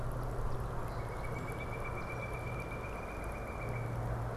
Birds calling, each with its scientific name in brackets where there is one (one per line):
Pileated Woodpecker (Dryocopus pileatus)
Song Sparrow (Melospiza melodia)